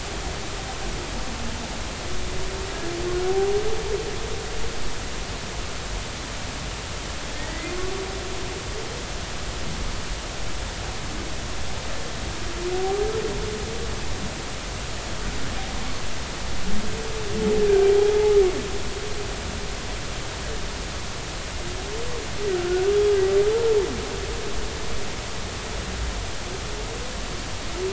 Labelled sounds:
3.3	3.6	humpback whale, 0.80 to 0.83 kHz
7.3	7.7	humpback whale, 1.8 to 2.1 kHz
18.0	18.4	humpback whale, 0.80 to 0.93 kHz
22.5	22.9	humpback whale, 1.3 to 1.6 kHz

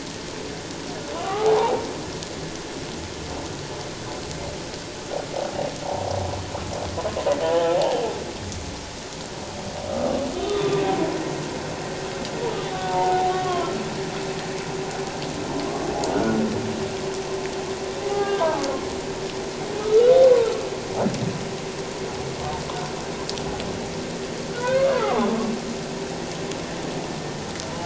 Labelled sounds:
1.2	1.9	humpback whale, 0.78 to 1.3 kHz
7.4	8.0	humpback whale, 0.78 to 3.0 kHz
9.9	10.7	humpback whale, 1.1 to 3.6 kHz
12.7	13.7	humpback whale, 0.78 to 1.2 kHz
18.0	18.4	humpback whale, 1.1 to 2.1 kHz
19.8	20.6	humpback whale, 1.2 to 1.5 kHz
24.5	25.3	humpback whale, 0.78 to 1.7 kHz

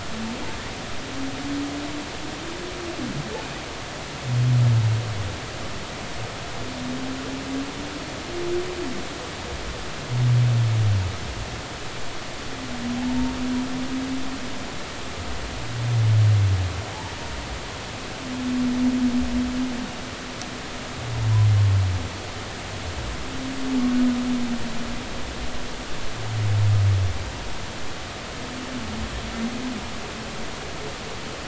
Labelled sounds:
13.1	13.3	humpback whale, 0.86 to 0.96 kHz
16.9	17.1	humpback whale, 0.80 to 1.0 kHz

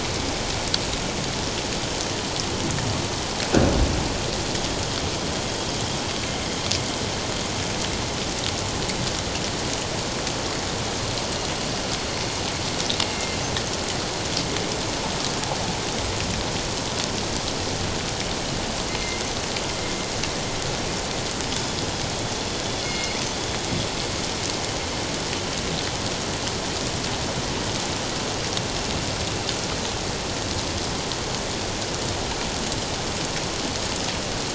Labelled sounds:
13.1	13.4	killer whale, northern resident, 2.1 to 2.2 kHz
18.9	19.2	killer whale, northern resident, 2.0 to 2.2 kHz
21.5	21.8	killer whale, northern resident, 3.2 to 5.2 kHz
22.8	23.2	killer whale, northern resident, G clan, call N24i, 1.9 to 4.4 kHz

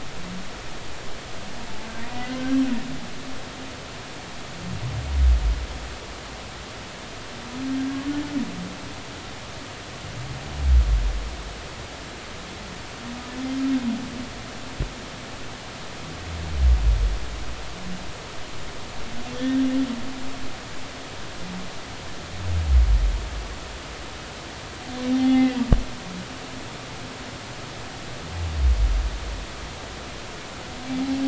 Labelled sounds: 2.1	2.4	humpback whale, 1.9 to 2.1 kHz
25.1	25.6	humpback whale, 0.80 to 2.1 kHz

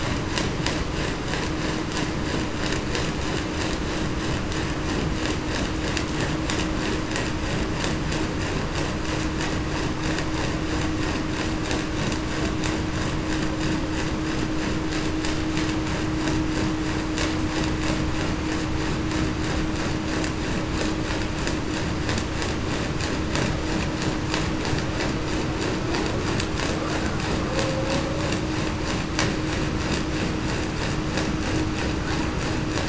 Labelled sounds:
27.5	27.9	humpback whale, 0.49 to 0.56 kHz

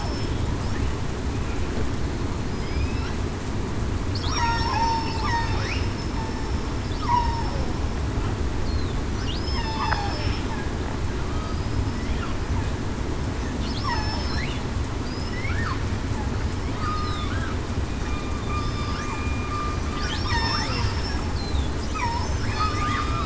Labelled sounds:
2.5	2.9	killer whale, southern resident, 5.0 to 5.1 kHz
4.4	5.1	killer whale, southern resident, 0.80 to 5.6 kHz
7.0	7.5	killer whale, southern resident, 0.80 to 1.1 kHz
9.3	10.0	killer whale, southern resident, 2.6 to 5.3 kHz
13.8	14.4	killer whale, southern resident, 5.2 to 5.5 kHz
16.7	17.3	killer whale, southern resident, 1.1 to 1.3 kHz
18.0	19.5	killer whale, southern resident, 2.4 to 3.6 kHz
20.3	21.1	killer whale, southern resident, 4.3 to 5.6 kHz
22.5	23.2	killer whale, southern resident, 1.1 to 1.3 kHz

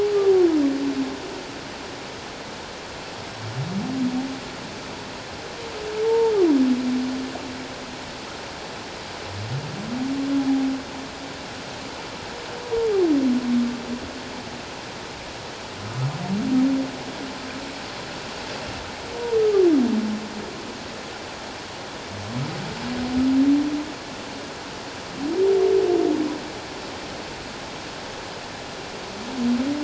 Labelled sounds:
6.1	6.3	humpback whale, 0.84 to 0.97 kHz
19.4	19.7	humpback whale, 1.1 to 1.3 kHz

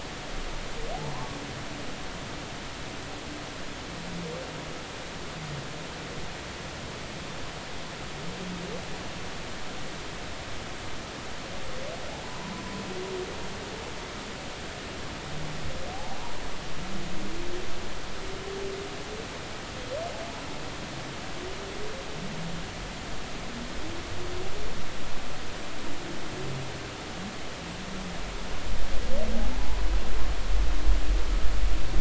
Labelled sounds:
1.1	1.4	humpback whale, 0.86 to 1.2 kHz
15.9	16.2	humpback whale, 0.80 to 0.96 kHz

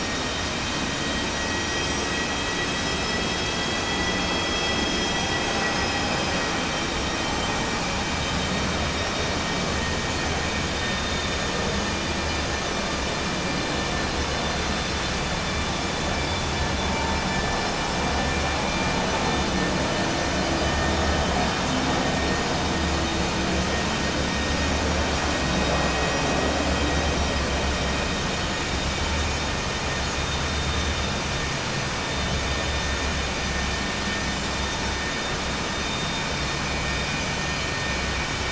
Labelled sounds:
10.3	12.1	vessel noise, 1.8 to 4.3 kHz

